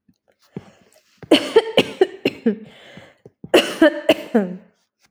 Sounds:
Cough